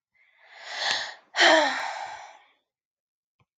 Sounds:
Sigh